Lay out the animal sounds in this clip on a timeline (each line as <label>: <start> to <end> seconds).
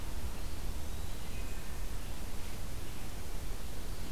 Eastern Wood-Pewee (Contopus virens): 0.6 to 1.7 seconds
Wood Thrush (Hylocichla mustelina): 1.1 to 2.1 seconds